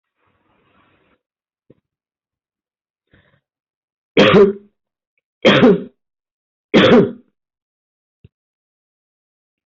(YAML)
expert_labels:
- quality: ok
  cough_type: dry
  dyspnea: false
  wheezing: false
  stridor: false
  choking: false
  congestion: false
  nothing: true
  diagnosis: healthy cough
  severity: pseudocough/healthy cough
age: 56
gender: female
respiratory_condition: true
fever_muscle_pain: false
status: symptomatic